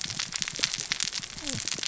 {"label": "biophony, cascading saw", "recorder": "SoundTrap 600 or HydroMoth"}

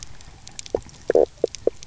{"label": "biophony, knock croak", "recorder": "SoundTrap 300"}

